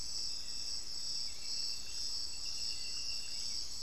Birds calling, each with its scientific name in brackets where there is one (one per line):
Hauxwell's Thrush (Turdus hauxwelli)